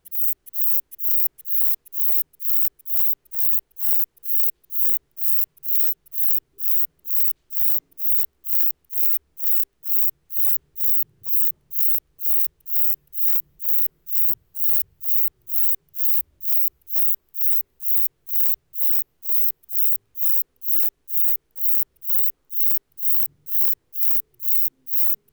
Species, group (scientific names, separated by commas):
Uromenus brevicollis, Orthoptera